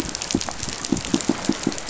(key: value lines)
label: biophony, pulse
recorder: SoundTrap 500